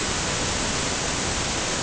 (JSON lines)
{"label": "ambient", "recorder": "HydroMoth"}